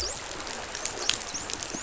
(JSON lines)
{"label": "biophony, dolphin", "recorder": "SoundTrap 500"}